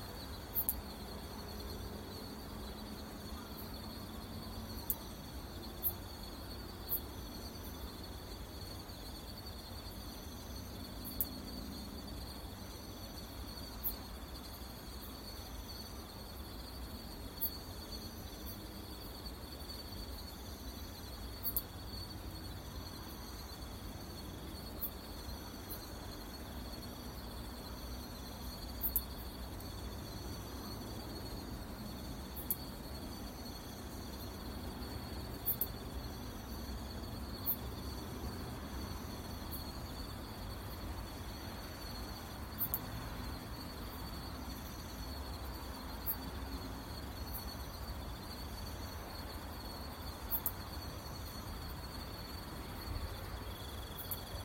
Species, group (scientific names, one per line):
Caedicia simplex
Orthoptera